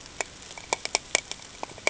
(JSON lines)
{"label": "ambient", "recorder": "HydroMoth"}